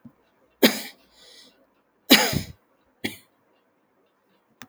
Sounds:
Cough